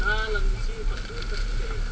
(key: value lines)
label: ambient
recorder: HydroMoth